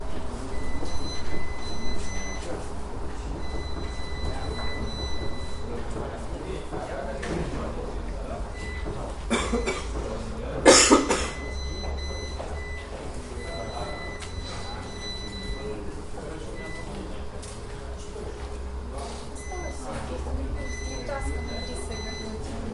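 0.1s Rhythmic pulsing beep coming from a room. 8.6s
9.0s An employee is coughing in the office. 11.5s
11.8s Faint squeaks and rhythmic pulsing from the UPS mix with overlapping office chatter in the background. 22.7s

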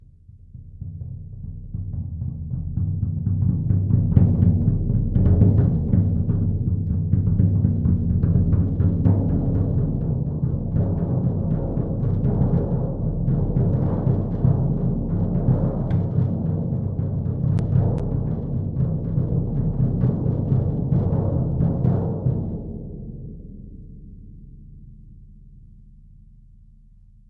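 0.0s Successive deep drum beats with a slight echo. 26.1s

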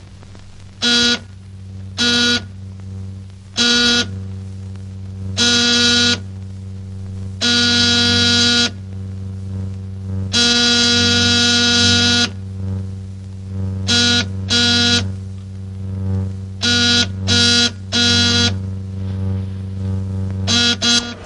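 0.8s A buzzer sounds briefly. 1.2s
1.9s A buzzer sounds briefly. 2.4s
3.5s A buzzer sounds briefly. 4.1s
5.4s A buzzer sounds briefly. 6.1s
7.4s A buzzer sounds at a medium volume. 8.7s
10.3s A buzzer sounds at a medium volume. 12.3s
13.8s A buzzer sounds briefly. 15.1s
16.6s A buzzer sounds briefly. 18.5s
20.4s A buzzer sounds briefly. 21.1s

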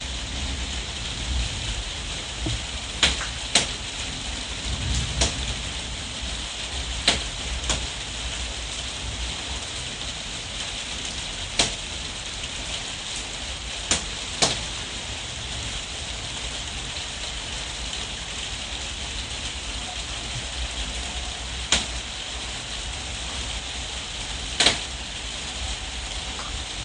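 0.0s Rain is falling in the background. 26.8s
3.0s Raindrops splash loudly. 3.7s
5.2s Raindrops splash loudly. 5.4s
7.0s Raindrops splash loudly. 7.9s
11.5s Raindrops splash loudly. 11.8s
13.9s Raindrops splash loudly. 14.6s
21.7s Raindrops splash loudly. 21.9s
24.6s Two raindrops splash loudly in quick succession. 24.8s

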